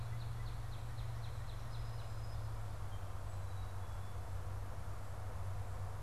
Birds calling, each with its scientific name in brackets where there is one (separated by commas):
Northern Cardinal (Cardinalis cardinalis), Song Sparrow (Melospiza melodia)